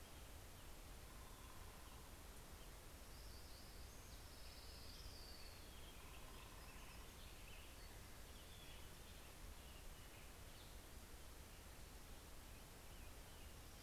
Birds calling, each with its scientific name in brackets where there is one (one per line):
Black-headed Grosbeak (Pheucticus melanocephalus)
Orange-crowned Warbler (Leiothlypis celata)
Hermit Warbler (Setophaga occidentalis)